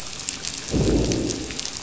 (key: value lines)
label: biophony, growl
recorder: SoundTrap 500